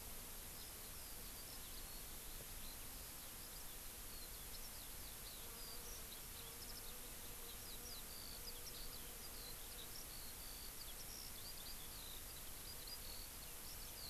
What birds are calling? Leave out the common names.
Alauda arvensis